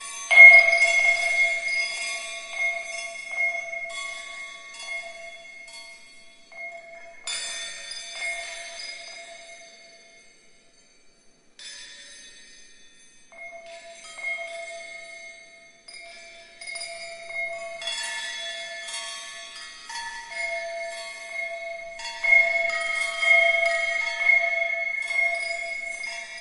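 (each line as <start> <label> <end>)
0.0 An irregularly ringing metal bell. 11.3
11.6 Metal kitchen utensils clinking together. 26.4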